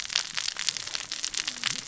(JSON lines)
{"label": "biophony, cascading saw", "recorder": "SoundTrap 600 or HydroMoth"}